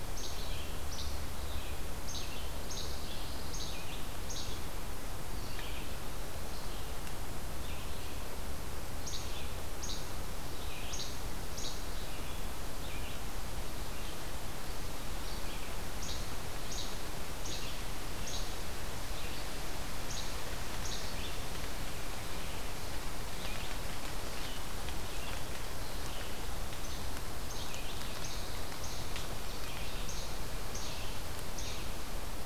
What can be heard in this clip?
Least Flycatcher, Red-eyed Vireo, Pine Warbler, Ovenbird